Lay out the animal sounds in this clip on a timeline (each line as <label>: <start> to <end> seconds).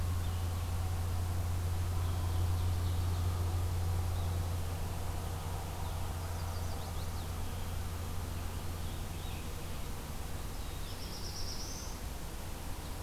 Ovenbird (Seiurus aurocapilla): 1.8 to 3.4 seconds
Blue-headed Vireo (Vireo solitarius): 4.0 to 13.0 seconds
Chestnut-sided Warbler (Setophaga pensylvanica): 6.0 to 7.3 seconds
Black-throated Blue Warbler (Setophaga caerulescens): 10.5 to 12.1 seconds